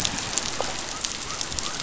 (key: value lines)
label: biophony
recorder: SoundTrap 500